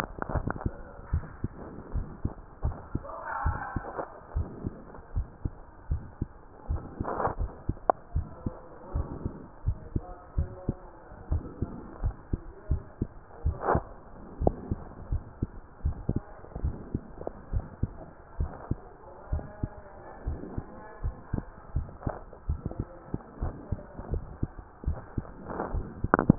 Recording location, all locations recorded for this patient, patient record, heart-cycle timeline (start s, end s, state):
mitral valve (MV)
aortic valve (AV)+pulmonary valve (PV)+tricuspid valve (TV)+mitral valve (MV)
#Age: Child
#Sex: Male
#Height: 130.0 cm
#Weight: 30.3 kg
#Pregnancy status: False
#Murmur: Present
#Murmur locations: aortic valve (AV)+mitral valve (MV)+pulmonary valve (PV)+tricuspid valve (TV)
#Most audible location: mitral valve (MV)
#Systolic murmur timing: Holosystolic
#Systolic murmur shape: Plateau
#Systolic murmur grading: II/VI
#Systolic murmur pitch: Low
#Systolic murmur quality: Blowing
#Diastolic murmur timing: nan
#Diastolic murmur shape: nan
#Diastolic murmur grading: nan
#Diastolic murmur pitch: nan
#Diastolic murmur quality: nan
#Outcome: Normal
#Campaign: 2015 screening campaign
0.00	0.76	unannotated
0.76	1.10	diastole
1.10	1.24	S1
1.24	1.40	systole
1.40	1.54	S2
1.54	1.92	diastole
1.92	2.06	S1
2.06	2.20	systole
2.20	2.32	S2
2.32	2.62	diastole
2.62	2.78	S1
2.78	2.92	systole
2.92	3.06	S2
3.06	3.42	diastole
3.42	3.60	S1
3.60	3.74	systole
3.74	3.86	S2
3.86	4.34	diastole
4.34	4.48	S1
4.48	4.66	systole
4.66	4.76	S2
4.76	5.14	diastole
5.14	5.28	S1
5.28	5.42	systole
5.42	5.52	S2
5.52	5.88	diastole
5.88	6.02	S1
6.02	6.18	systole
6.18	6.30	S2
6.30	6.68	diastole
6.68	6.82	S1
6.82	6.98	systole
6.98	7.08	S2
7.08	7.38	diastole
7.38	7.52	S1
7.52	7.66	systole
7.66	7.76	S2
7.76	8.14	diastole
8.14	8.26	S1
8.26	8.42	systole
8.42	8.56	S2
8.56	8.92	diastole
8.92	9.08	S1
9.08	9.22	systole
9.22	9.32	S2
9.32	9.64	diastole
9.64	9.78	S1
9.78	9.94	systole
9.94	10.04	S2
10.04	10.34	diastole
10.34	10.50	S1
10.50	10.68	systole
10.68	10.84	S2
10.84	11.26	diastole
11.26	11.44	S1
11.44	11.60	systole
11.60	11.70	S2
11.70	12.02	diastole
12.02	12.16	S1
12.16	12.30	systole
12.30	12.42	S2
12.42	12.68	diastole
12.68	12.82	S1
12.82	13.00	systole
13.00	13.10	S2
13.10	13.44	diastole
13.44	13.62	S1
13.62	13.73	systole
13.73	13.81	S2
13.81	14.40	diastole
14.40	14.56	S1
14.56	14.70	systole
14.70	14.80	S2
14.80	15.10	diastole
15.10	15.24	S1
15.24	15.40	systole
15.40	15.50	S2
15.50	15.82	diastole
15.82	15.98	S1
15.98	16.10	systole
16.10	16.24	S2
16.24	16.56	diastole
16.56	16.74	S1
16.74	16.92	systole
16.92	17.08	S2
17.08	17.48	diastole
17.48	17.66	S1
17.66	17.80	systole
17.80	17.96	S2
17.96	18.38	diastole
18.38	18.52	S1
18.52	18.70	systole
18.70	18.86	S2
18.86	19.28	diastole
19.28	19.46	S1
19.46	19.61	systole
19.61	19.71	S2
19.71	20.22	diastole
20.22	20.40	S1
20.40	20.58	systole
20.58	20.68	S2
20.68	21.02	diastole
21.02	21.16	S1
21.16	21.32	systole
21.32	21.46	S2
21.46	21.74	diastole
21.74	21.88	S1
21.88	22.02	systole
22.02	22.16	S2
22.16	22.48	diastole
22.48	22.62	S1
22.62	22.80	systole
22.80	22.92	S2
22.92	23.34	diastole
23.34	23.50	S1
23.50	23.68	systole
23.68	23.82	S2
23.82	24.10	diastole
24.10	24.26	S1
24.26	24.40	systole
24.40	24.50	S2
24.50	24.86	diastole
24.86	26.38	unannotated